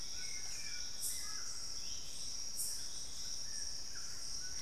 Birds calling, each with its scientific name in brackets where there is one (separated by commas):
White-throated Toucan (Ramphastos tucanus), Hauxwell's Thrush (Turdus hauxwelli)